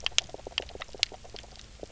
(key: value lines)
label: biophony, grazing
recorder: SoundTrap 300